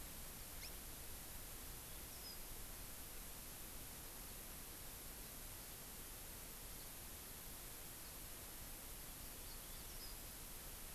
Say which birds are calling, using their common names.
Hawaii Amakihi, Yellow-fronted Canary